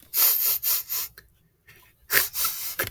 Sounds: Sniff